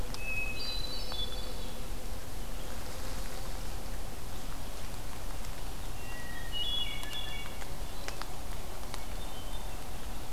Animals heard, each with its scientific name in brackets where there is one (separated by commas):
Hermit Thrush (Catharus guttatus)